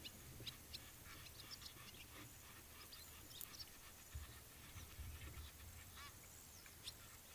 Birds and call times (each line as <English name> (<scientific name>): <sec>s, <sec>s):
Egyptian Goose (Alopochen aegyptiaca): 6.0s